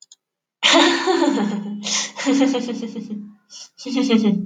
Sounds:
Laughter